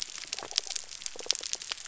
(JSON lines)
{"label": "biophony", "recorder": "SoundTrap 300"}